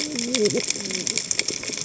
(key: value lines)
label: biophony, cascading saw
recorder: HydroMoth